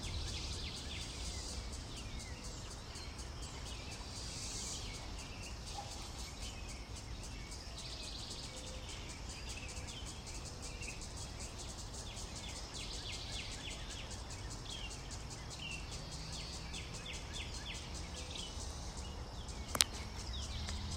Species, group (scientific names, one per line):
Magicicada septendecula
Cicadidae